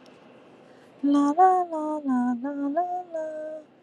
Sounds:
Sigh